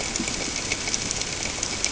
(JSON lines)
{"label": "ambient", "recorder": "HydroMoth"}